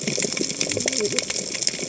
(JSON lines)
{"label": "biophony, cascading saw", "recorder": "HydroMoth"}